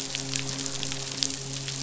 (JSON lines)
{"label": "biophony, midshipman", "recorder": "SoundTrap 500"}